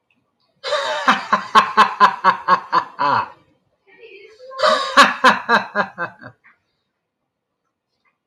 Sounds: Laughter